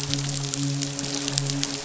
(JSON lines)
{"label": "biophony, midshipman", "recorder": "SoundTrap 500"}